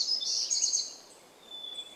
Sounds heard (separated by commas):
Hermit Thrush song, warbler song, unidentified bird chip note